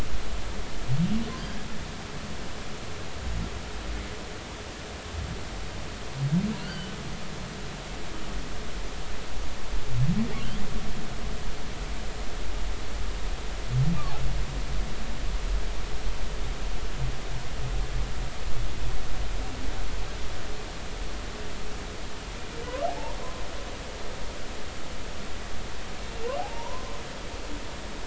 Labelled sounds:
6.7	6.9	humpback whale, 2.9 to 3.1 kHz
26.4	27.0	humpback whale, 0.80 to 1.1 kHz

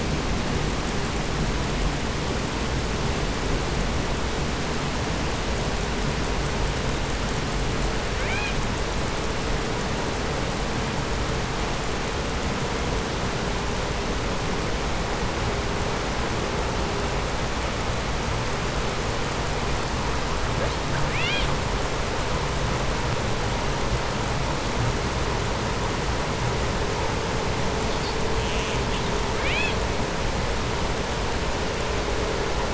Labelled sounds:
8.0	8.8	killer whale, southern resident, call S18, 0.33 to 5.1 kHz
20.5	21.7	killer whale, southern resident, call S18, 0.22 to 8.0 kHz
27.6	29.1	killer whale, southern resident, 1.8 to 8.0 kHz
29.1	30.0	killer whale, southern resident, call S18, 1.3 to 8.0 kHz

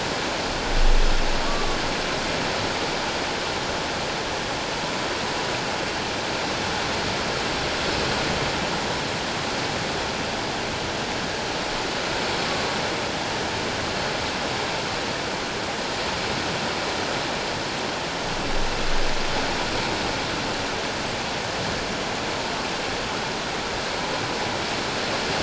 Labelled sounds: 1.5	1.8	humpback whale, 1.1 to 1.2 kHz

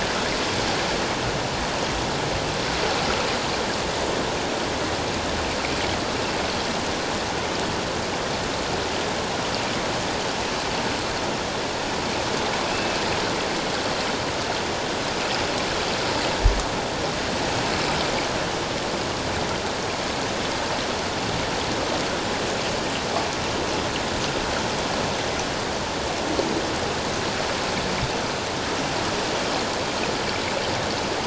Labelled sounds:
12.7	12.9	killer whale, offshore, 2.5 to 2.7 kHz

